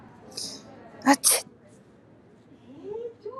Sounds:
Sneeze